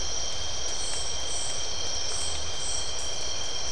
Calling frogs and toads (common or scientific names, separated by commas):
none